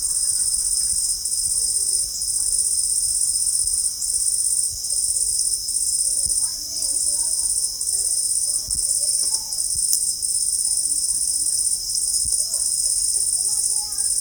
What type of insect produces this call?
orthopteran